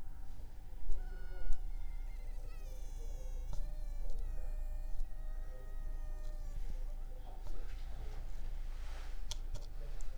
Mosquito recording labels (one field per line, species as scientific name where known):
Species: Anopheles funestus s.s.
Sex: female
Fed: unfed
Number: one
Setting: cup